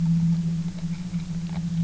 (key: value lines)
label: anthrophony, boat engine
recorder: SoundTrap 300